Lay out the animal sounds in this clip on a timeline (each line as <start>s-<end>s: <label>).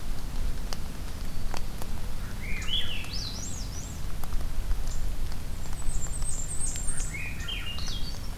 0.7s-1.9s: Black-throated Green Warbler (Setophaga virens)
2.2s-4.0s: Swainson's Thrush (Catharus ustulatus)
4.8s-5.1s: unidentified call
5.6s-7.2s: Blackburnian Warbler (Setophaga fusca)
6.8s-8.4s: Swainson's Thrush (Catharus ustulatus)